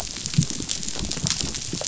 {"label": "biophony, rattle response", "recorder": "SoundTrap 500"}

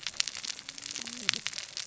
{"label": "biophony, cascading saw", "recorder": "SoundTrap 600 or HydroMoth"}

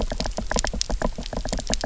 {"label": "biophony, knock", "recorder": "SoundTrap 300"}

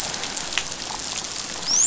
{"label": "biophony, dolphin", "recorder": "SoundTrap 500"}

